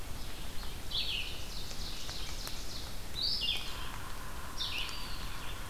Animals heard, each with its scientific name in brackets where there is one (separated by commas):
Red-eyed Vireo (Vireo olivaceus), Yellow-bellied Sapsucker (Sphyrapicus varius), Ovenbird (Seiurus aurocapilla), Eastern Wood-Pewee (Contopus virens)